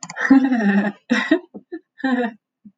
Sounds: Laughter